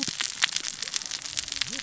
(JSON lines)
{"label": "biophony, cascading saw", "recorder": "SoundTrap 600 or HydroMoth"}